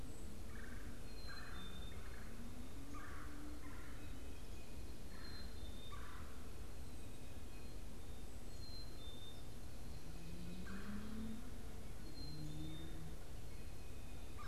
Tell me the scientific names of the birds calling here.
Melanerpes carolinus, Poecile atricapillus